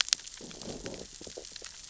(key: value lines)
label: biophony, growl
recorder: SoundTrap 600 or HydroMoth